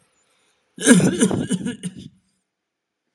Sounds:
Cough